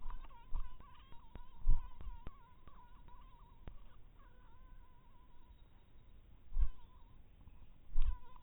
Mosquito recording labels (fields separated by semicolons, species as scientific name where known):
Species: mosquito; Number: one; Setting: cup